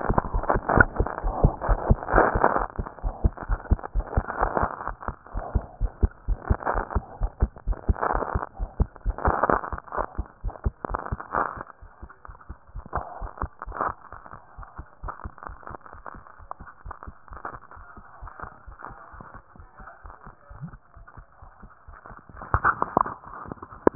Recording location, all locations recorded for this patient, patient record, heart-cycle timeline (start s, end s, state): aortic valve (AV)
aortic valve (AV)+pulmonary valve (PV)+tricuspid valve (TV)+mitral valve (MV)
#Age: Adolescent
#Sex: Male
#Height: nan
#Weight: nan
#Pregnancy status: False
#Murmur: Absent
#Murmur locations: nan
#Most audible location: nan
#Systolic murmur timing: nan
#Systolic murmur shape: nan
#Systolic murmur grading: nan
#Systolic murmur pitch: nan
#Systolic murmur quality: nan
#Diastolic murmur timing: nan
#Diastolic murmur shape: nan
#Diastolic murmur grading: nan
#Diastolic murmur pitch: nan
#Diastolic murmur quality: nan
#Outcome: Normal
#Campaign: 2015 screening campaign
0.00	5.30	unannotated
5.30	5.42	S1
5.42	5.52	systole
5.52	5.60	S2
5.60	5.78	diastole
5.78	5.90	S1
5.90	5.99	systole
5.99	6.09	S2
6.09	6.25	diastole
6.25	6.37	S1
6.37	6.47	systole
6.47	6.56	S2
6.56	6.70	diastole
6.70	6.82	S1
6.82	6.93	systole
6.93	7.02	S2
7.02	7.18	diastole
7.18	7.29	S1
7.29	7.39	systole
7.39	7.49	S2
7.49	7.65	diastole
7.65	7.75	S1
7.75	7.85	systole
7.85	7.94	S2
7.94	8.57	unannotated
8.57	8.68	S1
8.68	8.76	systole
8.76	8.86	S2
8.86	9.04	diastole
9.04	9.15	S1
9.15	10.41	unannotated
10.41	10.55	S1
10.55	10.63	systole
10.63	10.71	S2
10.71	10.86	diastole
10.86	10.95	S1
10.95	11.10	systole
11.10	11.17	S2
11.17	23.95	unannotated